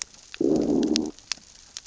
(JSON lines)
{"label": "biophony, growl", "recorder": "SoundTrap 600 or HydroMoth"}